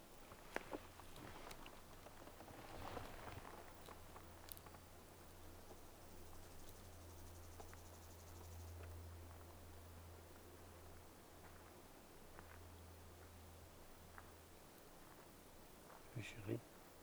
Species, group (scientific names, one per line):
Stenobothrus fischeri
Orthoptera